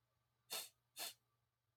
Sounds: Sniff